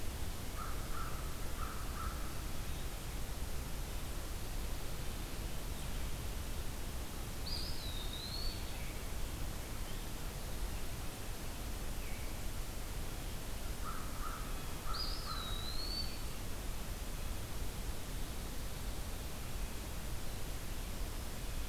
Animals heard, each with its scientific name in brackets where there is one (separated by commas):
Eastern Wood-Pewee (Contopus virens), American Crow (Corvus brachyrhynchos)